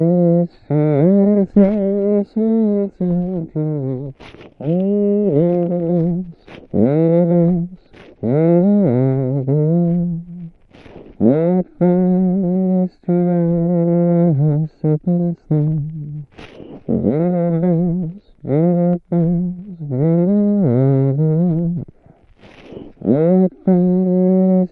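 A man hums a Christmas carol in a very subdued voice. 0:00.0 - 0:24.7

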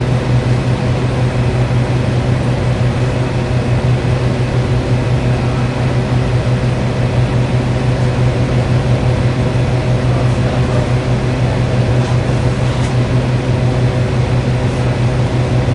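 Continuous humming sound of a machine working. 0:00.0 - 0:15.7

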